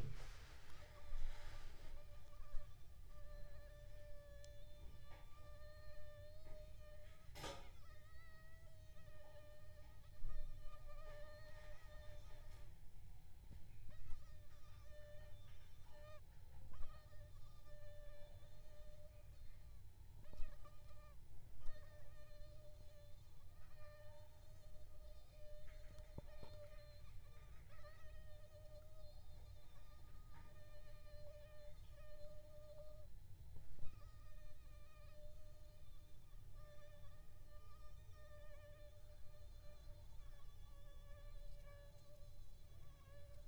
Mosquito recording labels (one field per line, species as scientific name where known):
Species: Aedes aegypti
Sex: female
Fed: unfed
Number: one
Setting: cup